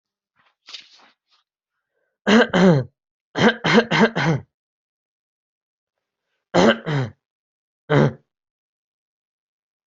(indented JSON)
{
  "expert_labels": [
    {
      "quality": "good",
      "cough_type": "dry",
      "dyspnea": false,
      "wheezing": false,
      "stridor": false,
      "choking": false,
      "congestion": false,
      "nothing": true,
      "diagnosis": "healthy cough",
      "severity": "pseudocough/healthy cough"
    }
  ]
}